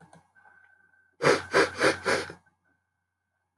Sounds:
Sniff